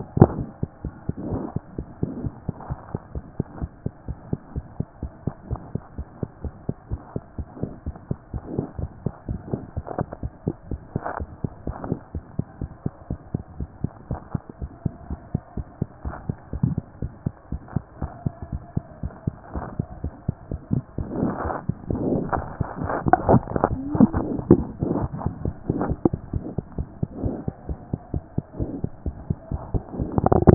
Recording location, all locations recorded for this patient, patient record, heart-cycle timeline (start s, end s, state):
mitral valve (MV)
mitral valve (MV)
#Age: Infant
#Sex: Male
#Height: nan
#Weight: 7.4 kg
#Pregnancy status: False
#Murmur: Absent
#Murmur locations: nan
#Most audible location: nan
#Systolic murmur timing: nan
#Systolic murmur shape: nan
#Systolic murmur grading: nan
#Systolic murmur pitch: nan
#Systolic murmur quality: nan
#Diastolic murmur timing: nan
#Diastolic murmur shape: nan
#Diastolic murmur grading: nan
#Diastolic murmur pitch: nan
#Diastolic murmur quality: nan
#Outcome: Abnormal
#Campaign: 2014 screening campaign
0.00	2.70	unannotated
2.70	2.78	S1
2.78	2.92	systole
2.92	3.00	S2
3.00	3.14	diastole
3.14	3.24	S1
3.24	3.38	systole
3.38	3.46	S2
3.46	3.60	diastole
3.60	3.70	S1
3.70	3.84	systole
3.84	3.92	S2
3.92	4.08	diastole
4.08	4.18	S1
4.18	4.30	systole
4.30	4.40	S2
4.40	4.54	diastole
4.54	4.64	S1
4.64	4.78	systole
4.78	4.86	S2
4.86	5.02	diastole
5.02	5.12	S1
5.12	5.24	systole
5.24	5.34	S2
5.34	5.50	diastole
5.50	5.60	S1
5.60	5.74	systole
5.74	5.82	S2
5.82	5.98	diastole
5.98	6.06	S1
6.06	6.20	systole
6.20	6.28	S2
6.28	6.44	diastole
6.44	6.54	S1
6.54	6.66	systole
6.66	6.76	S2
6.76	6.90	diastole
6.90	7.00	S1
7.00	7.14	systole
7.14	7.24	S2
7.24	7.40	diastole
7.40	7.48	S1
7.48	7.60	systole
7.60	7.70	S2
7.70	7.86	diastole
7.86	7.96	S1
7.96	8.10	systole
8.10	8.18	S2
8.18	8.35	diastole
8.35	8.43	S1
8.43	8.57	systole
8.57	8.65	S2
8.65	8.80	diastole
8.80	8.89	S1
8.89	9.06	systole
9.06	9.15	S2
9.15	9.28	diastole
9.28	9.38	S1
9.38	9.52	systole
9.52	9.62	S2
9.62	9.76	diastole
9.76	9.86	S1
9.86	9.98	systole
9.98	10.08	S2
10.08	10.22	diastole
10.22	10.32	S1
10.32	10.46	systole
10.46	10.54	S2
10.54	10.70	diastole
10.70	10.80	S1
10.80	10.94	systole
10.94	11.02	S2
11.02	11.20	diastole
11.20	11.30	S1
11.30	11.42	systole
11.42	11.50	S2
11.50	11.66	diastole
11.66	11.76	S1
11.76	11.88	systole
11.88	11.98	S2
11.98	12.16	diastole
12.16	12.24	S1
12.24	12.36	systole
12.36	12.46	S2
12.46	12.60	diastole
12.60	12.70	S1
12.70	12.84	systole
12.84	12.92	S2
12.92	13.10	diastole
13.10	13.20	S1
13.20	13.32	systole
13.32	13.42	S2
13.42	13.58	diastole
13.58	13.70	S1
13.70	13.82	systole
13.82	13.90	S2
13.90	14.10	diastole
14.10	14.20	S1
14.20	14.32	systole
14.32	14.42	S2
14.42	14.60	diastole
14.60	14.70	S1
14.70	14.84	systole
14.84	14.94	S2
14.94	15.10	diastole
15.10	15.20	S1
15.20	15.32	systole
15.32	15.42	S2
15.42	15.56	diastole
15.56	15.66	S1
15.66	15.80	systole
15.80	15.88	S2
15.88	16.04	diastole
16.04	16.16	S1
16.16	16.28	systole
16.28	16.36	S2
16.36	16.53	diastole
16.53	30.54	unannotated